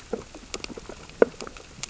{"label": "biophony, sea urchins (Echinidae)", "recorder": "SoundTrap 600 or HydroMoth"}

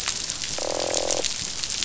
{"label": "biophony, croak", "recorder": "SoundTrap 500"}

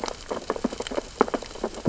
{"label": "biophony, sea urchins (Echinidae)", "recorder": "SoundTrap 600 or HydroMoth"}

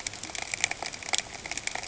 {"label": "ambient", "recorder": "HydroMoth"}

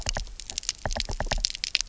{"label": "biophony, knock", "recorder": "SoundTrap 300"}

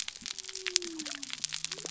{"label": "biophony", "recorder": "SoundTrap 300"}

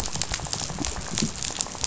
{"label": "biophony, rattle", "recorder": "SoundTrap 500"}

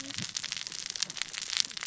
{"label": "biophony, cascading saw", "recorder": "SoundTrap 600 or HydroMoth"}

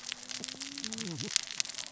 {"label": "biophony, cascading saw", "recorder": "SoundTrap 600 or HydroMoth"}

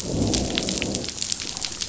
{"label": "biophony, growl", "recorder": "SoundTrap 500"}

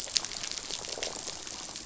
{"label": "biophony", "recorder": "SoundTrap 500"}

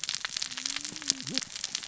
{"label": "biophony, cascading saw", "recorder": "SoundTrap 600 or HydroMoth"}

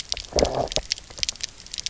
{"label": "biophony, low growl", "recorder": "SoundTrap 300"}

